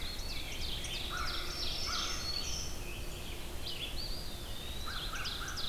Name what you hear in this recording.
Eastern Wood-Pewee, Ovenbird, Rose-breasted Grosbeak, American Crow, Black-throated Green Warbler, Red-eyed Vireo